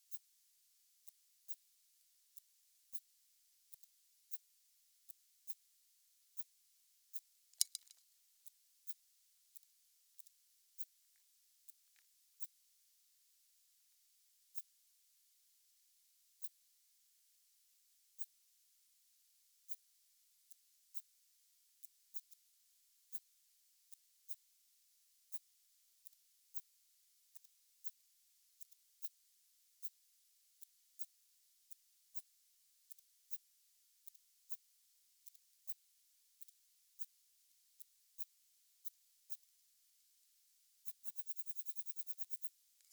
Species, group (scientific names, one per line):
Phaneroptera falcata
Orthoptera